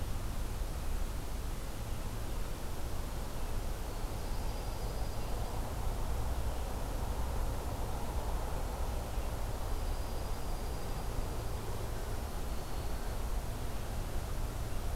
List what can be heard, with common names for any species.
Dark-eyed Junco